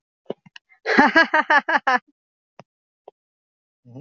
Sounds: Laughter